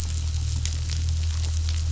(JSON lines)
{"label": "anthrophony, boat engine", "recorder": "SoundTrap 500"}